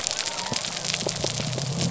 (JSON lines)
{"label": "biophony", "recorder": "SoundTrap 300"}